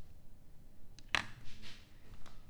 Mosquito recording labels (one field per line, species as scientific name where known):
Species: Culex pipiens complex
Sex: female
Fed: unfed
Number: one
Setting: cup